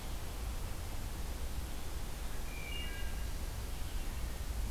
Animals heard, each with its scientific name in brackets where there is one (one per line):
Wood Thrush (Hylocichla mustelina)